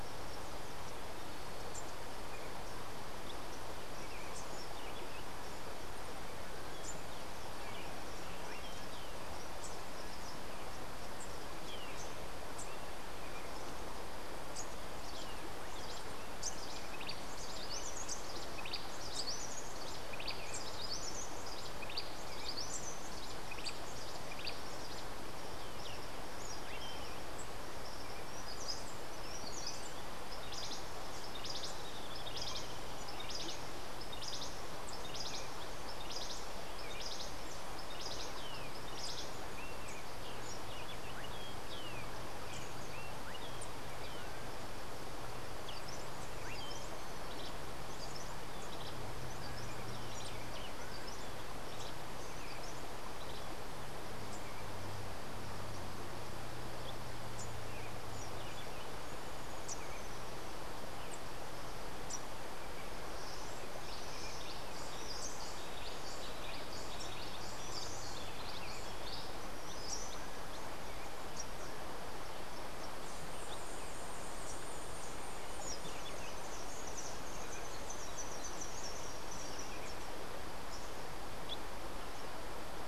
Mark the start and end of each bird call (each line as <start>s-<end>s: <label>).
16.3s-24.8s: Rufous-breasted Wren (Pheugopedius rutilus)
30.2s-39.4s: Cabanis's Wren (Cantorchilus modestus)
40.2s-44.3s: Melodious Blackbird (Dives dives)
45.6s-53.5s: Rufous-breasted Wren (Pheugopedius rutilus)
63.7s-70.3s: Rufous-breasted Wren (Pheugopedius rutilus)
75.7s-79.9s: Rufous-capped Warbler (Basileuterus rufifrons)